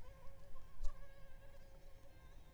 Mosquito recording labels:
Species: Anopheles arabiensis; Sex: female; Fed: unfed; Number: one; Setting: cup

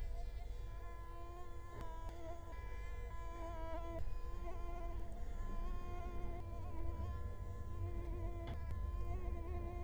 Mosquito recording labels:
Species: Culex quinquefasciatus; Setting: cup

